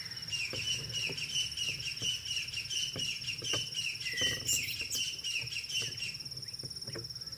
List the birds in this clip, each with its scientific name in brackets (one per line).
Crested Francolin (Ortygornis sephaena)